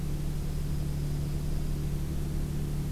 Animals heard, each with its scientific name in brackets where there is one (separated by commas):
Dark-eyed Junco (Junco hyemalis)